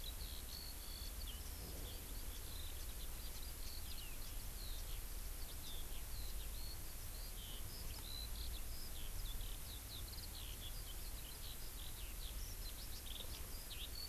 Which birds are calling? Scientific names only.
Alauda arvensis